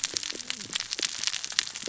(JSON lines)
{"label": "biophony, cascading saw", "recorder": "SoundTrap 600 or HydroMoth"}